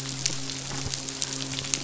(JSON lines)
{"label": "biophony, midshipman", "recorder": "SoundTrap 500"}